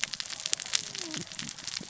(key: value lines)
label: biophony, cascading saw
recorder: SoundTrap 600 or HydroMoth